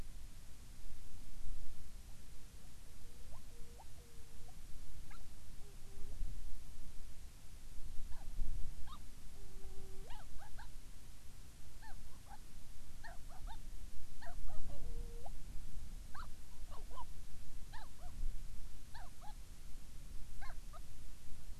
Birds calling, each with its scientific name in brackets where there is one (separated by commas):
Hawaiian Petrel (Pterodroma sandwichensis)